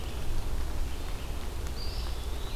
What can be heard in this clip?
Red-eyed Vireo, Eastern Wood-Pewee